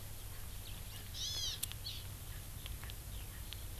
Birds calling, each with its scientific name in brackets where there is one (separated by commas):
Erckel's Francolin (Pternistis erckelii), Hawaii Amakihi (Chlorodrepanis virens)